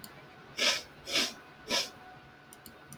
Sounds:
Sniff